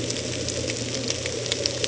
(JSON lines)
{"label": "ambient", "recorder": "HydroMoth"}